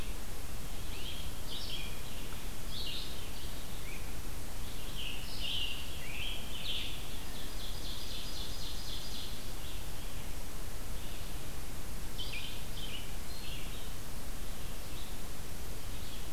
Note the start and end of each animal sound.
[0.00, 16.32] Red-eyed Vireo (Vireo olivaceus)
[4.54, 7.14] Scarlet Tanager (Piranga olivacea)
[7.11, 9.68] Ovenbird (Seiurus aurocapilla)

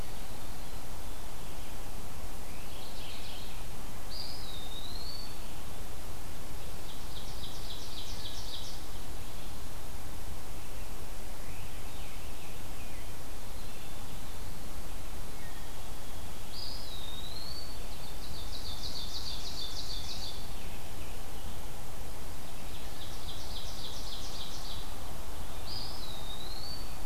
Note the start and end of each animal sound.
[2.49, 3.56] Mourning Warbler (Geothlypis philadelphia)
[3.96, 5.58] Eastern Wood-Pewee (Contopus virens)
[6.67, 8.99] Ovenbird (Seiurus aurocapilla)
[11.23, 13.27] Scarlet Tanager (Piranga olivacea)
[15.34, 18.57] White-throated Sparrow (Zonotrichia albicollis)
[16.25, 17.80] Eastern Wood-Pewee (Contopus virens)
[18.05, 20.52] Ovenbird (Seiurus aurocapilla)
[19.68, 21.77] Scarlet Tanager (Piranga olivacea)
[22.71, 24.95] Ovenbird (Seiurus aurocapilla)
[25.50, 26.98] Eastern Wood-Pewee (Contopus virens)

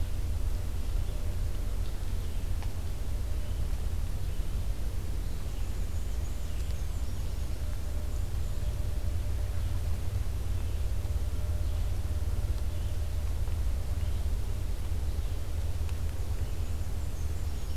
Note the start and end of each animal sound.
[0.00, 17.76] Red-eyed Vireo (Vireo olivaceus)
[5.33, 8.60] Black-and-white Warbler (Mniotilta varia)
[15.98, 17.76] Black-and-white Warbler (Mniotilta varia)

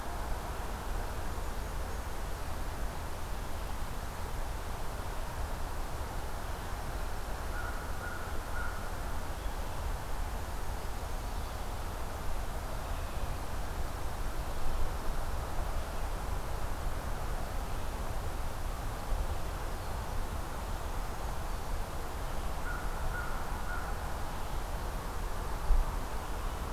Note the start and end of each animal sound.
[7.43, 8.96] American Crow (Corvus brachyrhynchos)
[22.26, 24.16] American Crow (Corvus brachyrhynchos)

